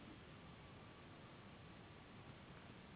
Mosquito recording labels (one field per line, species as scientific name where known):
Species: Anopheles gambiae s.s.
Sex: female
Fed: unfed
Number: one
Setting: insect culture